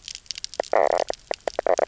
{"label": "biophony, knock croak", "recorder": "SoundTrap 300"}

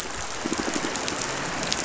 {"label": "biophony", "recorder": "SoundTrap 500"}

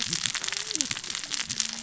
{"label": "biophony, cascading saw", "recorder": "SoundTrap 600 or HydroMoth"}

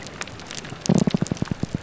{"label": "biophony", "recorder": "SoundTrap 300"}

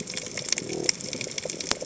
{"label": "biophony", "recorder": "HydroMoth"}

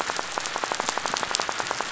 {"label": "biophony, rattle", "recorder": "SoundTrap 500"}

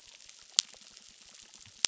{"label": "biophony, crackle", "recorder": "SoundTrap 600"}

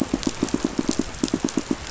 {"label": "biophony, pulse", "recorder": "SoundTrap 500"}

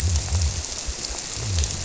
{"label": "biophony", "recorder": "SoundTrap 300"}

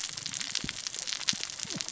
{"label": "biophony, cascading saw", "recorder": "SoundTrap 600 or HydroMoth"}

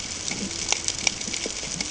{"label": "ambient", "recorder": "HydroMoth"}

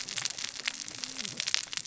{"label": "biophony, cascading saw", "recorder": "SoundTrap 600 or HydroMoth"}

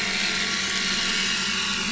{"label": "anthrophony, boat engine", "recorder": "SoundTrap 500"}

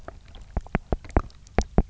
{"label": "biophony, knock", "recorder": "SoundTrap 300"}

